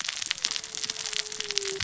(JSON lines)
{"label": "biophony, cascading saw", "recorder": "SoundTrap 600 or HydroMoth"}